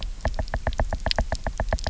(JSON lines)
{"label": "biophony, knock", "recorder": "SoundTrap 300"}